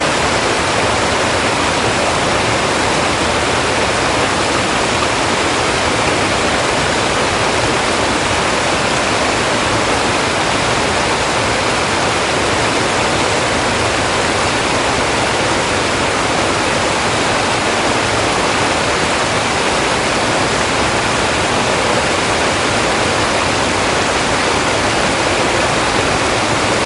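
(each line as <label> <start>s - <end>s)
Heavy rainfall with strong raindrop impacts. 0.0s - 26.9s
Subtle sounds of light and distant rain hitting a surface. 0.0s - 26.9s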